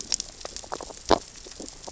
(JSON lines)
{"label": "biophony, sea urchins (Echinidae)", "recorder": "SoundTrap 600 or HydroMoth"}